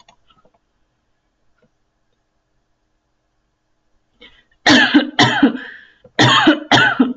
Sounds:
Cough